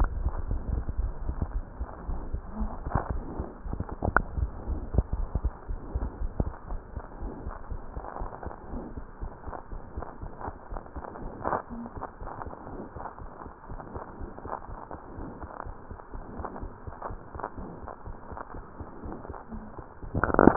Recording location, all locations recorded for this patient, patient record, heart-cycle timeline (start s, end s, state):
tricuspid valve (TV)
aortic valve (AV)+pulmonary valve (PV)+tricuspid valve (TV)+mitral valve (MV)
#Age: Child
#Sex: Female
#Height: 80.0 cm
#Weight: 10.7 kg
#Pregnancy status: False
#Murmur: Absent
#Murmur locations: nan
#Most audible location: nan
#Systolic murmur timing: nan
#Systolic murmur shape: nan
#Systolic murmur grading: nan
#Systolic murmur pitch: nan
#Systolic murmur quality: nan
#Diastolic murmur timing: nan
#Diastolic murmur shape: nan
#Diastolic murmur grading: nan
#Diastolic murmur pitch: nan
#Diastolic murmur quality: nan
#Outcome: Abnormal
#Campaign: 2015 screening campaign
0.00	7.04	unannotated
7.04	7.20	diastole
7.20	7.34	S1
7.34	7.44	systole
7.44	7.54	S2
7.54	7.68	diastole
7.68	7.82	S1
7.82	7.94	systole
7.94	8.04	S2
8.04	8.18	diastole
8.18	8.30	S1
8.30	8.44	systole
8.44	8.54	S2
8.54	8.72	diastole
8.72	8.86	S1
8.86	8.98	systole
8.98	9.06	S2
9.06	9.20	diastole
9.20	9.30	S1
9.30	9.44	systole
9.44	9.54	S2
9.54	9.72	diastole
9.72	9.80	S1
9.80	9.94	systole
9.94	10.04	S2
10.04	10.20	diastole
10.20	10.30	S1
10.30	10.44	systole
10.44	10.56	S2
10.56	10.72	diastole
10.72	10.80	S1
10.80	10.92	systole
10.92	11.02	S2
11.02	11.18	diastole
11.18	11.30	S1
11.30	11.46	systole
11.46	11.60	S2
11.60	11.76	diastole
11.76	11.90	S1
11.90	12.02	systole
12.02	12.08	S2
12.08	12.22	diastole
12.22	12.30	S1
12.30	12.44	systole
12.44	12.52	S2
12.52	12.68	diastole
12.68	12.80	S1
12.80	12.94	systole
12.94	13.04	S2
13.04	13.20	diastole
13.20	13.30	S1
13.30	13.46	systole
13.46	13.52	S2
13.52	13.70	diastole
13.70	13.82	S1
13.82	13.96	systole
13.96	14.06	S2
14.06	14.22	diastole
14.22	14.30	S1
14.30	14.44	systole
14.44	14.54	S2
14.54	14.70	diastole
14.70	14.78	S1
14.78	14.88	systole
14.88	14.94	S2
14.94	15.12	diastole
15.12	15.20	S1
15.20	15.36	systole
15.36	15.48	S2
15.48	15.66	diastole
15.66	15.74	S1
15.74	15.90	systole
15.90	15.98	S2
15.98	16.14	diastole
16.14	16.24	S1
16.24	16.38	systole
16.38	16.44	S2
16.44	16.60	diastole
16.60	16.72	S1
16.72	16.86	systole
16.86	16.94	S2
16.94	17.10	diastole
17.10	17.20	S1
17.20	17.34	systole
17.34	17.44	S2
17.44	17.58	diastole
17.58	17.68	S1
17.68	17.84	systole
17.84	17.92	S2
17.92	18.08	diastole
18.08	18.18	S1
18.18	18.30	systole
18.30	18.38	S2
18.38	18.54	diastole
18.54	18.64	S1
18.64	18.78	systole
18.78	18.88	S2
18.88	19.02	diastole
19.02	19.14	S1
19.14	19.26	systole
19.26	19.36	S2
19.36	19.52	diastole
19.52	20.56	unannotated